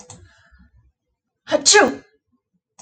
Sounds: Sneeze